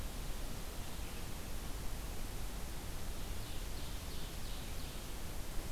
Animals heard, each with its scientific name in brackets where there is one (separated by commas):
Ovenbird (Seiurus aurocapilla)